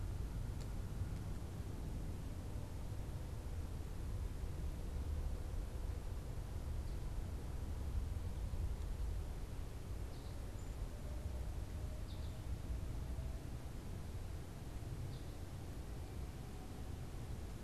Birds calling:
American Goldfinch (Spinus tristis)

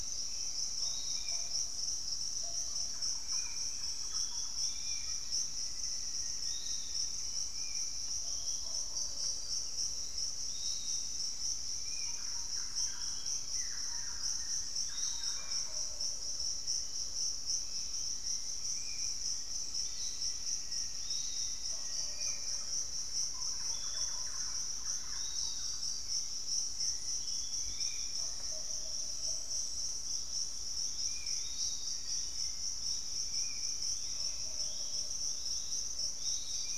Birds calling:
Hauxwell's Thrush (Turdus hauxwelli), Piratic Flycatcher (Legatus leucophaius), Thrush-like Wren (Campylorhynchus turdinus), Pygmy Antwren (Myrmotherula brachyura), Spot-winged Antshrike (Pygiptila stellaris), Black-faced Antthrush (Formicarius analis)

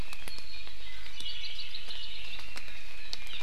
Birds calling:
Hawaii Creeper (Loxops mana), Hawaii Amakihi (Chlorodrepanis virens)

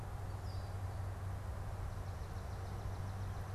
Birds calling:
Swamp Sparrow (Melospiza georgiana), unidentified bird

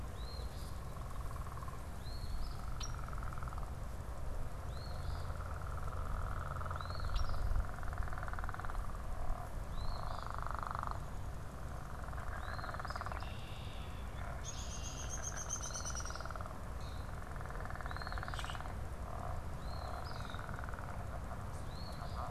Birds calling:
Downy Woodpecker (Dryobates pubescens), Common Grackle (Quiscalus quiscula), Red-winged Blackbird (Agelaius phoeniceus), Eastern Phoebe (Sayornis phoebe)

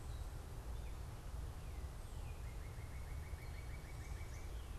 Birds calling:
Northern Cardinal (Cardinalis cardinalis)

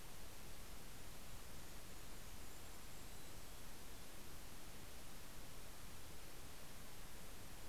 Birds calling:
Mountain Chickadee (Poecile gambeli), Golden-crowned Kinglet (Regulus satrapa)

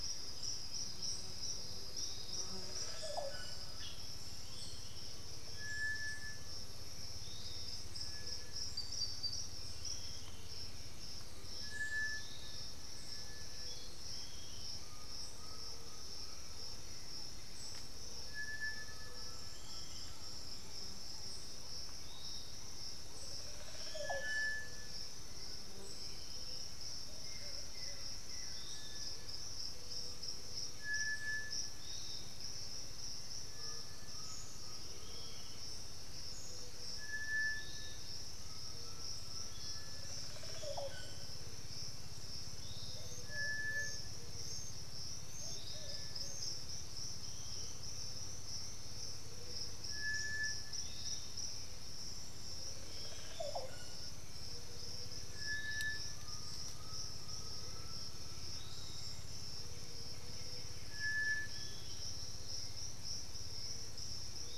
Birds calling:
Thrush-like Wren (Campylorhynchus turdinus), Piratic Flycatcher (Legatus leucophaius), Buff-throated Woodcreeper (Xiphorhynchus guttatus), Olive Oropendola (Psarocolius bifasciatus), Black-billed Thrush (Turdus ignobilis), Plumbeous Pigeon (Patagioenas plumbea), Black-throated Antbird (Myrmophylax atrothorax), White-winged Becard (Pachyramphus polychopterus), Great Antshrike (Taraba major), Undulated Tinamou (Crypturellus undulatus)

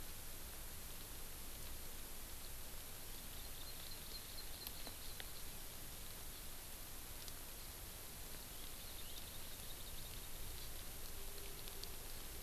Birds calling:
Hawaii Amakihi (Chlorodrepanis virens)

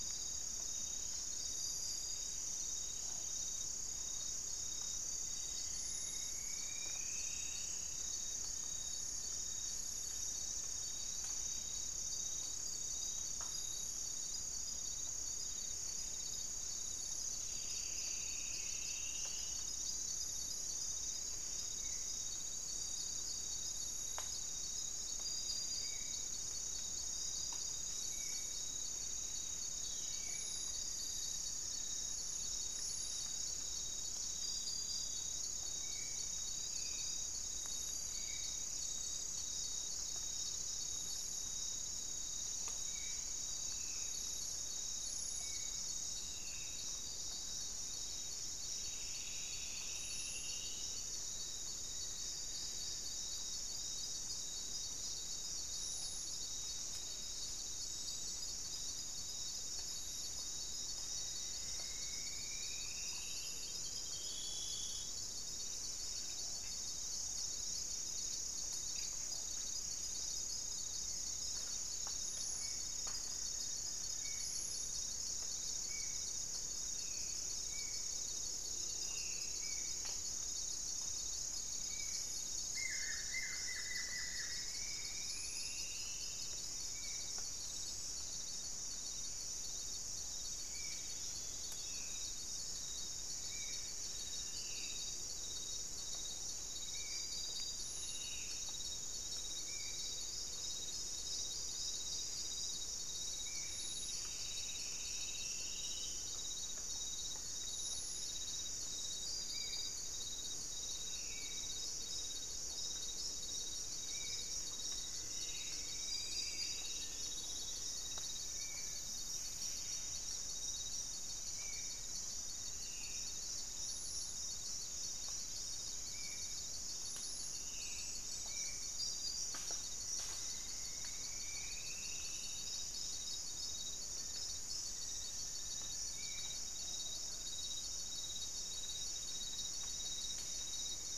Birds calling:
Black-faced Antthrush (Formicarius analis), Spot-winged Antshrike (Pygiptila stellaris), unidentified bird, Buff-throated Woodcreeper (Xiphorhynchus guttatus), Striped Woodcreeper (Xiphorhynchus obsoletus), Long-winged Antwren (Myrmotherula longipennis), Black-tailed Trogon (Trogon melanurus), Plumbeous Pigeon (Patagioenas plumbea), Black-spotted Bare-eye (Phlegopsis nigromaculata), Buff-breasted Wren (Cantorchilus leucotis)

